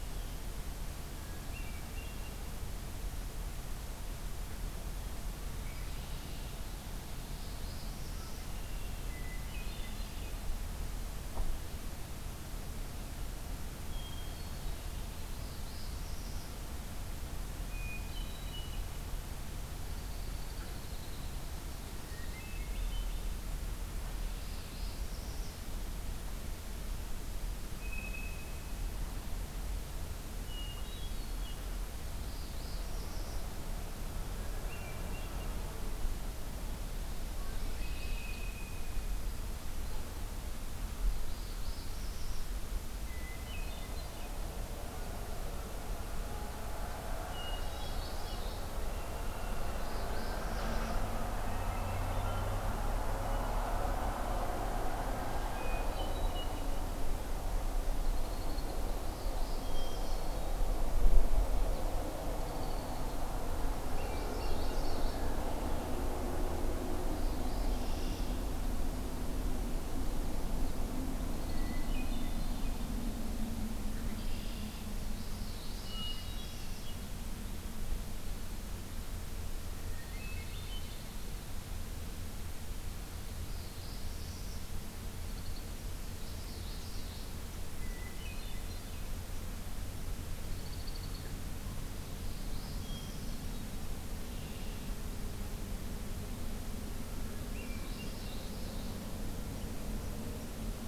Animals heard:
Red-winged Blackbird (Agelaius phoeniceus), Common Yellowthroat (Geothlypis trichas), Hermit Thrush (Catharus guttatus), Northern Parula (Setophaga americana)

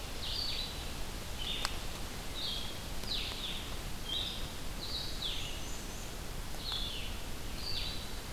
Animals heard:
Black-and-white Warbler (Mniotilta varia), Blue-headed Vireo (Vireo solitarius)

